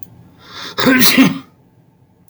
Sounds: Sneeze